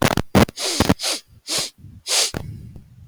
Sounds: Sniff